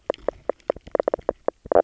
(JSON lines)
{"label": "biophony, knock croak", "recorder": "SoundTrap 300"}